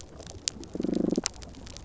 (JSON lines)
{"label": "biophony, damselfish", "recorder": "SoundTrap 300"}